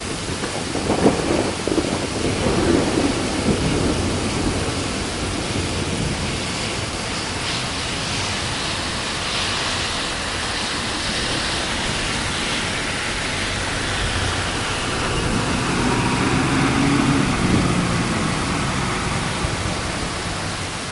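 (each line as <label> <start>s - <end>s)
Heavy rain accompanied by strong wind and thunder. 0.6s - 4.7s
Heavy rain falls with a strong, steady sound. 5.4s - 15.0s
Occasional traffic sounds blend with heavy rainfall. 15.8s - 19.0s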